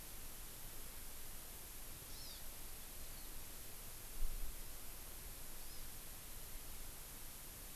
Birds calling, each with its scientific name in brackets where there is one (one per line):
Hawaii Amakihi (Chlorodrepanis virens)